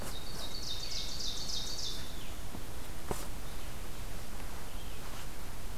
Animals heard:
Ovenbird (Seiurus aurocapilla), Red-eyed Vireo (Vireo olivaceus)

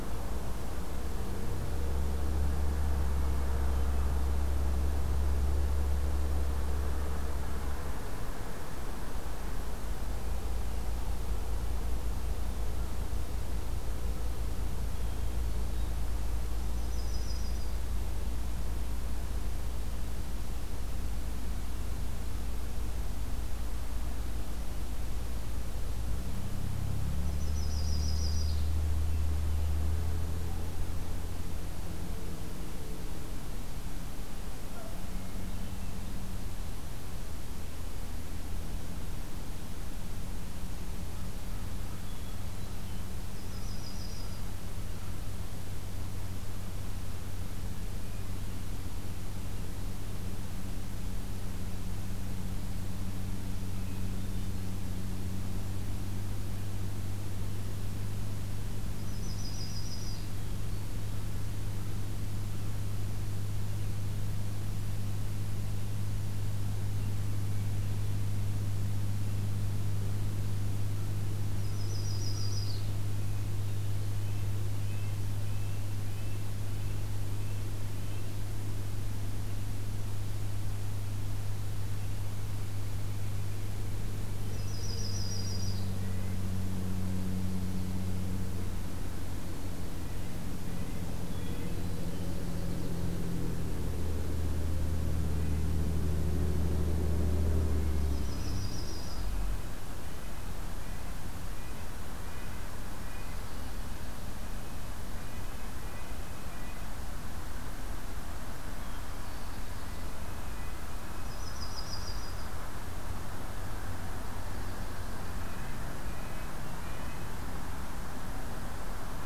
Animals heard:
Hermit Thrush (Catharus guttatus), Yellow-rumped Warbler (Setophaga coronata), Red-breasted Nuthatch (Sitta canadensis)

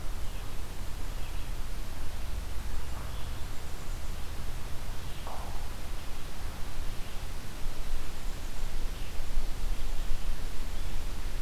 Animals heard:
Red-eyed Vireo (Vireo olivaceus)

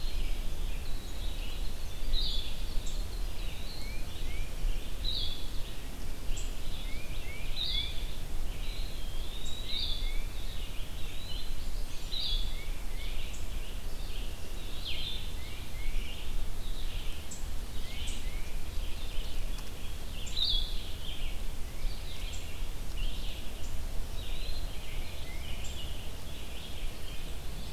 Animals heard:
Winter Wren (Troglodytes hiemalis), Blackburnian Warbler (Setophaga fusca), Red-eyed Vireo (Vireo olivaceus), Blue-headed Vireo (Vireo solitarius), Tufted Titmouse (Baeolophus bicolor), Eastern Wood-Pewee (Contopus virens)

